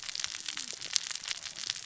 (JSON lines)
{"label": "biophony, cascading saw", "recorder": "SoundTrap 600 or HydroMoth"}